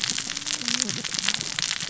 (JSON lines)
{"label": "biophony, cascading saw", "recorder": "SoundTrap 600 or HydroMoth"}